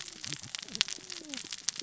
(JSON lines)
{"label": "biophony, cascading saw", "recorder": "SoundTrap 600 or HydroMoth"}